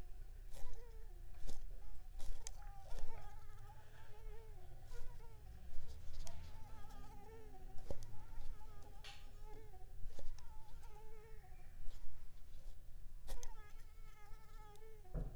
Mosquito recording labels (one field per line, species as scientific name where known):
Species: Anopheles arabiensis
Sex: female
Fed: unfed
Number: one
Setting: cup